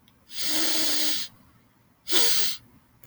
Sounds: Sniff